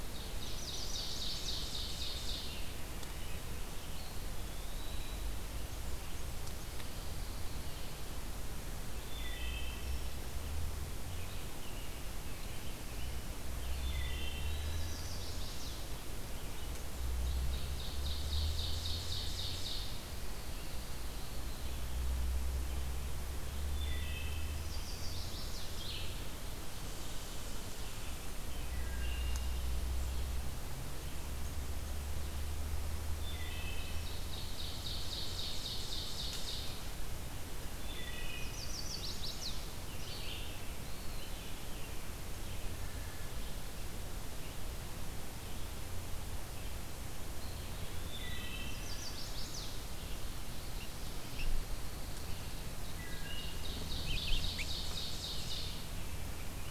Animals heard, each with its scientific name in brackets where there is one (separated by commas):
Wood Thrush (Hylocichla mustelina), Eastern Wood-Pewee (Contopus virens), Red-eyed Vireo (Vireo olivaceus), American Robin (Turdus migratorius), Ovenbird (Seiurus aurocapilla), Pine Warbler (Setophaga pinus), Chestnut-sided Warbler (Setophaga pensylvanica), Red Squirrel (Tamiasciurus hudsonicus)